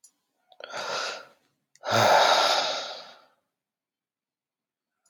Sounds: Sigh